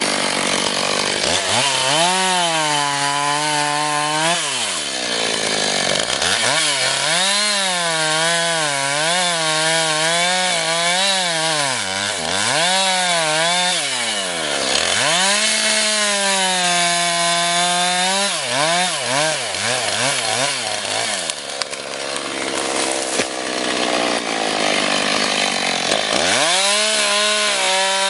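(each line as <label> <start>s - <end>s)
A chainsaw running at low RPM. 0.1s - 1.3s
A chainsaw running at high RPM. 1.4s - 4.7s
A chainsaw running at low RPM. 4.8s - 6.1s
A chainsaw running at high RPM. 6.2s - 21.4s
A chainsaw running at low RPM. 21.5s - 26.3s
A chainsaw running at high RPM. 26.4s - 28.1s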